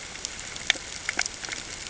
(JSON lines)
{"label": "ambient", "recorder": "HydroMoth"}